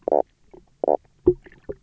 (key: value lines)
label: biophony, knock croak
recorder: SoundTrap 300